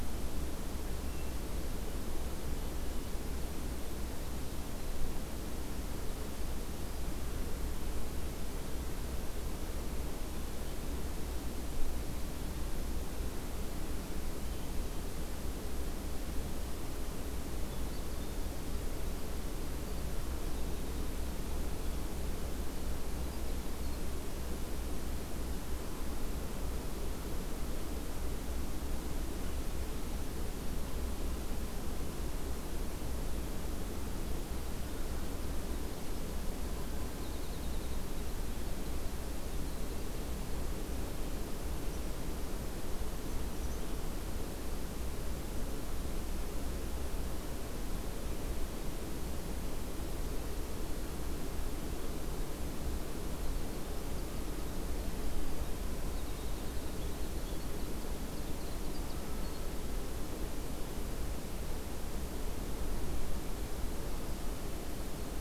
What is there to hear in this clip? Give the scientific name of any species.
Troglodytes hiemalis